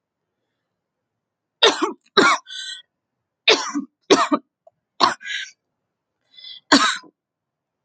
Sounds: Cough